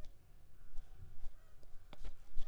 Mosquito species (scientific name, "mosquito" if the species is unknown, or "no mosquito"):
Anopheles arabiensis